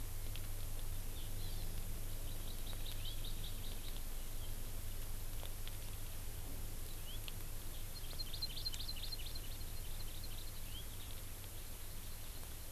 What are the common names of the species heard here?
Hawaii Amakihi, House Finch